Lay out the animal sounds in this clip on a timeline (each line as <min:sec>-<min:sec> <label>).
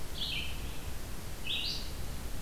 0:00.0-0:02.4 Red-eyed Vireo (Vireo olivaceus)